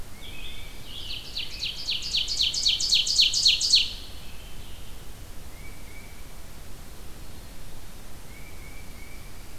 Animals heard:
Tufted Titmouse (Baeolophus bicolor), Ovenbird (Seiurus aurocapilla), Scarlet Tanager (Piranga olivacea)

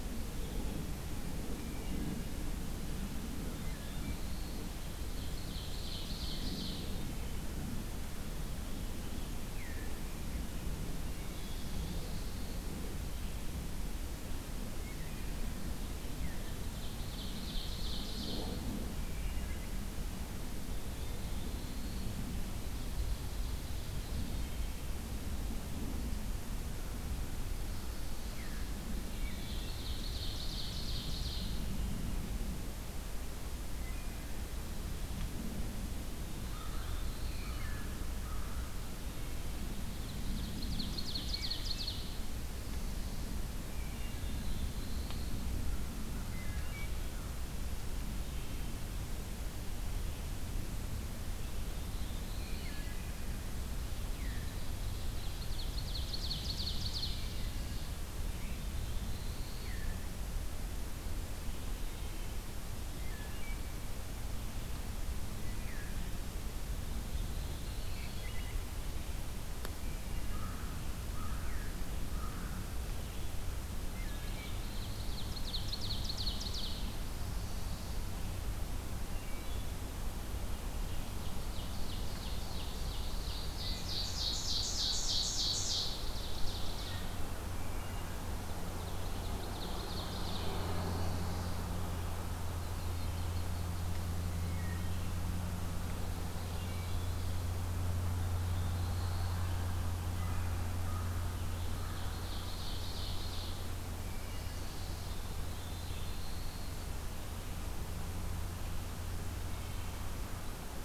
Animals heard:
Ovenbird (Seiurus aurocapilla), Yellow-rumped Warbler (Setophaga coronata), Wood Thrush (Hylocichla mustelina), Black-throated Blue Warbler (Setophaga caerulescens), unidentified call, American Crow (Corvus brachyrhynchos)

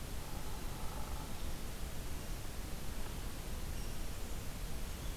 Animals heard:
Hairy Woodpecker (Dryobates villosus)

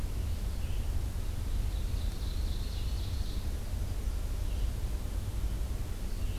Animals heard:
American Goldfinch (Spinus tristis), Ovenbird (Seiurus aurocapilla), Red-eyed Vireo (Vireo olivaceus)

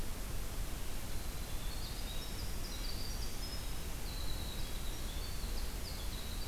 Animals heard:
Winter Wren (Troglodytes hiemalis)

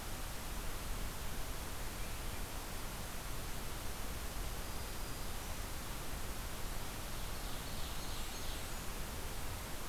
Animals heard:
Blackburnian Warbler (Setophaga fusca), Black-throated Green Warbler (Setophaga virens), Ovenbird (Seiurus aurocapilla)

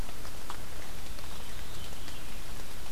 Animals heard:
Veery (Catharus fuscescens)

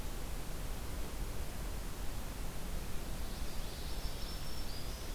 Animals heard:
Black-throated Green Warbler (Setophaga virens), Common Yellowthroat (Geothlypis trichas)

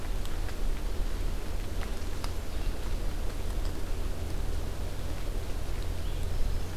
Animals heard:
Red-eyed Vireo (Vireo olivaceus)

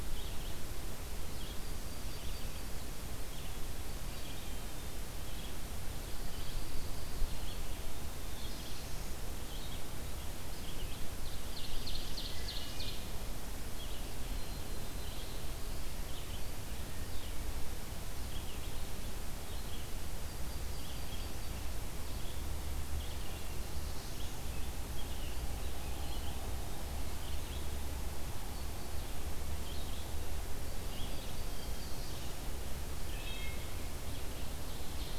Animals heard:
Wood Thrush (Hylocichla mustelina), Red-eyed Vireo (Vireo olivaceus), Pine Warbler (Setophaga pinus), Ovenbird (Seiurus aurocapilla), Yellow-rumped Warbler (Setophaga coronata), Black-throated Blue Warbler (Setophaga caerulescens)

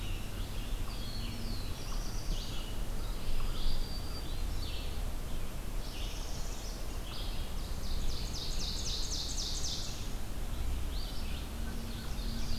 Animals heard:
unknown mammal, Northern Parula (Setophaga americana), Black-throated Green Warbler (Setophaga virens), Red-eyed Vireo (Vireo olivaceus), Black-throated Blue Warbler (Setophaga caerulescens), Ovenbird (Seiurus aurocapilla)

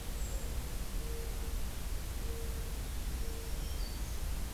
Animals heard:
Brown Creeper (Certhia americana), Black-throated Green Warbler (Setophaga virens)

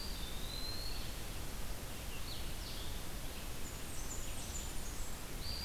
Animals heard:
Blue-headed Vireo (Vireo solitarius), Blackburnian Warbler (Setophaga fusca), Red-eyed Vireo (Vireo olivaceus), Eastern Wood-Pewee (Contopus virens)

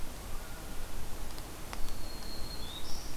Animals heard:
Black-throated Green Warbler (Setophaga virens)

